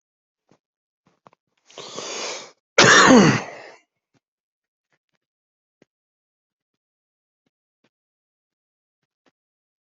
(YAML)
expert_labels:
- quality: good
  cough_type: wet
  dyspnea: false
  wheezing: false
  stridor: false
  choking: false
  congestion: false
  nothing: true
  diagnosis: lower respiratory tract infection
  severity: mild